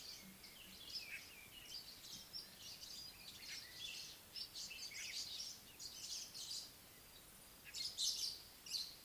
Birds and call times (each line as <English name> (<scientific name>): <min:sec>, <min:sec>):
Meyer's Parrot (Poicephalus meyeri): 0:05.2